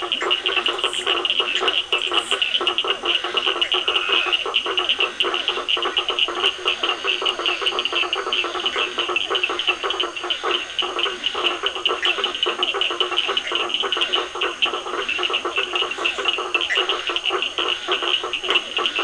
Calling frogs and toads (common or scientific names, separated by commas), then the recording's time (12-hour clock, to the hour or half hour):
Leptodactylus latrans, blacksmith tree frog, Physalaemus cuvieri, Scinax perereca, Cochran's lime tree frog, Dendropsophus nahdereri, Bischoff's tree frog
8:30pm